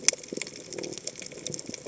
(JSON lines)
{"label": "biophony", "recorder": "HydroMoth"}